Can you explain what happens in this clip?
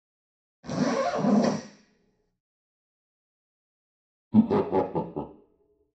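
First, the sound of a zipper can be heard. Then laughter is audible.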